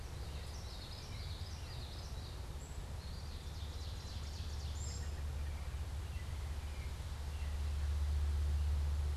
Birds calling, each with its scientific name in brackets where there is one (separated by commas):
Common Yellowthroat (Geothlypis trichas), American Robin (Turdus migratorius), Ovenbird (Seiurus aurocapilla), Eastern Wood-Pewee (Contopus virens)